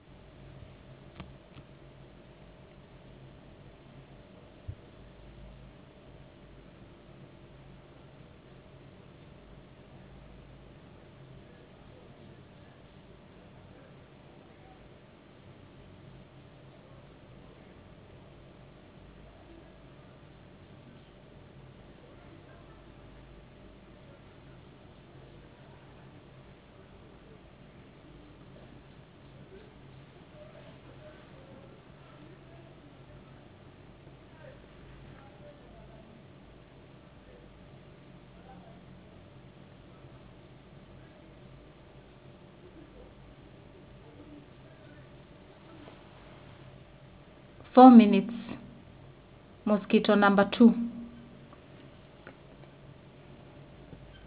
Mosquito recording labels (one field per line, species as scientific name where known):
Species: no mosquito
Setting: insect culture